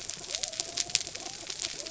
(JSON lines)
{"label": "anthrophony, mechanical", "recorder": "SoundTrap 300"}
{"label": "biophony", "recorder": "SoundTrap 300"}